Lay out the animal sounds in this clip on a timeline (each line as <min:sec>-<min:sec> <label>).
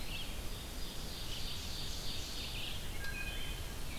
0:00.0-0:04.0 Red-eyed Vireo (Vireo olivaceus)
0:00.2-0:02.7 Ovenbird (Seiurus aurocapilla)
0:02.8-0:03.8 Wood Thrush (Hylocichla mustelina)